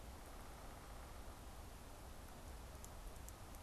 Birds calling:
Downy Woodpecker (Dryobates pubescens)

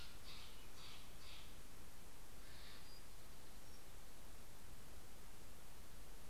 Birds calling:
Steller's Jay (Cyanocitta stelleri)
Townsend's Warbler (Setophaga townsendi)

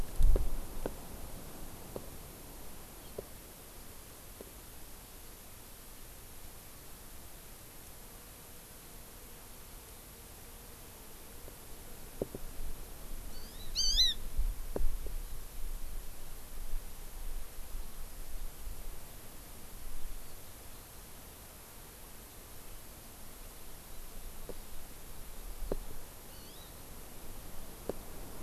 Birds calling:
Hawaii Amakihi (Chlorodrepanis virens)

